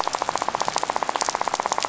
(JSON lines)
{"label": "biophony, rattle", "recorder": "SoundTrap 500"}